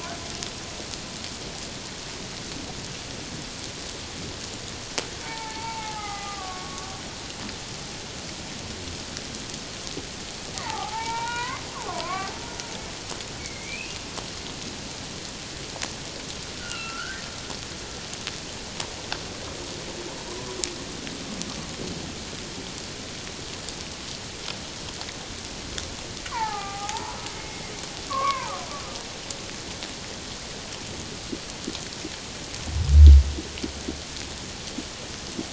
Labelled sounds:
5.2	7.0	humpback whale, 0.78 to 2.3 kHz
10.6	12.3	humpback whale, 0.78 to 4.0 kHz
13.4	13.9	humpback whale, 2.1 to 2.7 kHz
16.6	17.2	humpback whale, 1.2 to 2.9 kHz
20.3	20.6	humpback whale, 0.91 to 1.2 kHz
26.3	27.6	humpback whale, 0.78 to 2.2 kHz
28.1	28.5	humpback whale, 0.84 to 2.4 kHz

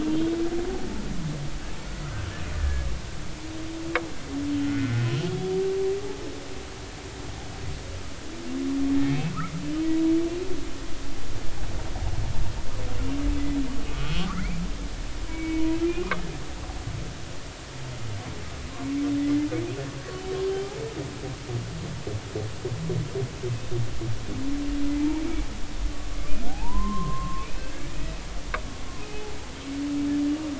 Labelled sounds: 2.6	2.9	humpback whale, 1.6 to 1.8 kHz
4.6	5.0	humpback whale, 1.4 to 2.2 kHz
13.9	14.6	humpback whale, 1.1 to 3.4 kHz
15.3	16.2	humpback whale, 0.99 to 2.5 kHz
19.2	19.5	humpback whale, 1.9 to 2.2 kHz
20.5	20.8	humpback whale, 0.80 to 0.90 kHz
25.0	25.2	humpback whale, 0.80 to 0.99 kHz
26.5	28.1	humpback whale, 0.80 to 2.7 kHz
29.0	29.3	humpback whale, 2.4 to 2.6 kHz

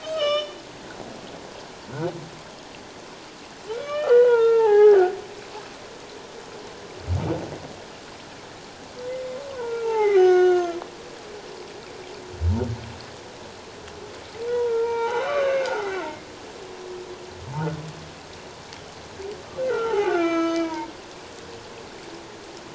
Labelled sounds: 0.0	0.6	humpback whale, 1.1 to 6.6 kHz
3.7	5.2	humpback whale, 0.78 to 3.6 kHz
9.5	10.8	humpback whale, 0.78 to 6.4 kHz
14.5	16.0	humpback whale, 0.78 to 4.0 kHz
19.6	20.9	humpback whale, 0.78 to 6.4 kHz

